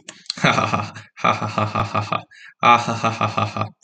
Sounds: Laughter